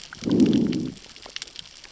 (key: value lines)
label: biophony, growl
recorder: SoundTrap 600 or HydroMoth